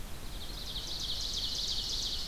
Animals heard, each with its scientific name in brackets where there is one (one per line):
Ovenbird (Seiurus aurocapilla)